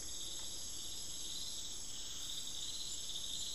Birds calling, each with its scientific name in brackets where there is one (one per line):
unidentified bird